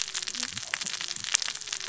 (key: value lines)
label: biophony, cascading saw
recorder: SoundTrap 600 or HydroMoth